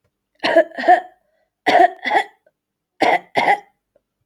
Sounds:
Cough